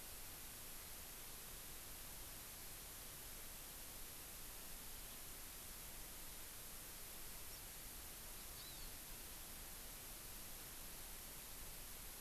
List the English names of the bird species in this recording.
House Finch, Hawaii Amakihi